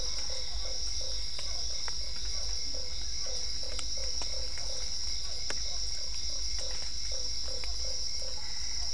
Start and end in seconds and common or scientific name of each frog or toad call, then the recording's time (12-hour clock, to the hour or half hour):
0.0	7.6	Dendropsophus cruzi
0.0	8.9	Usina tree frog
0.0	8.9	Physalaemus cuvieri
8.3	8.9	Boana albopunctata
7pm